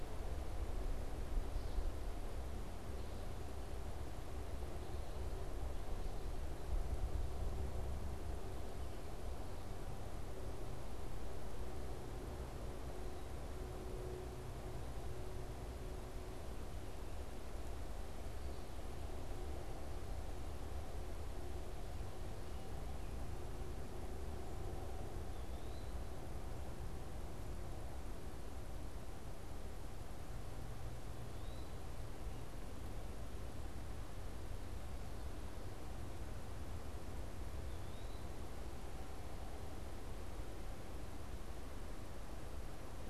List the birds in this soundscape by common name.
Eastern Wood-Pewee